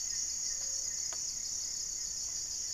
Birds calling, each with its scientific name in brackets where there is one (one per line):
Gray-fronted Dove (Leptotila rufaxilla)
Goeldi's Antbird (Akletos goeldii)